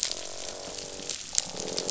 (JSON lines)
{"label": "biophony", "recorder": "SoundTrap 500"}
{"label": "biophony, croak", "recorder": "SoundTrap 500"}